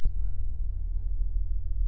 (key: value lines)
label: anthrophony, boat engine
recorder: SoundTrap 300